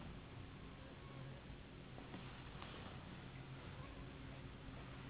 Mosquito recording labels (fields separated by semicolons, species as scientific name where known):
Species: Anopheles gambiae s.s.; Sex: female; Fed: unfed; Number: one; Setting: insect culture